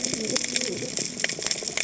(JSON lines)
{"label": "biophony, cascading saw", "recorder": "HydroMoth"}